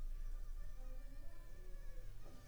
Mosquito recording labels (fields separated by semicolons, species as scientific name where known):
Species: Anopheles funestus s.s.; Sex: female; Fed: unfed; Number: one; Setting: cup